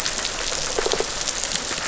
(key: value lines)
label: biophony
recorder: SoundTrap 500